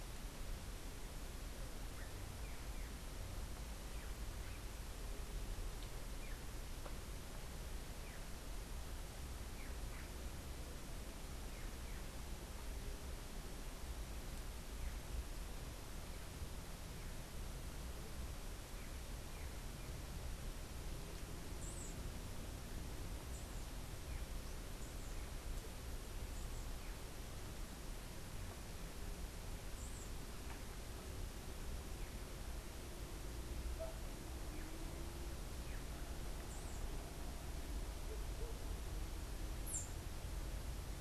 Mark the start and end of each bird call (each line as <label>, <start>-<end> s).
Black-chested Jay (Cyanocorax affinis), 2.3-3.0 s
Black-chested Jay (Cyanocorax affinis), 9.4-12.1 s
unidentified bird, 21.5-22.0 s
unidentified bird, 29.6-30.0 s
unidentified bird, 39.6-40.0 s